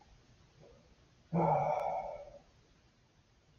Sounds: Sigh